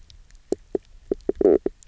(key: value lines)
label: biophony, knock croak
recorder: SoundTrap 300